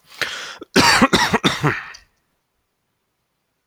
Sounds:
Cough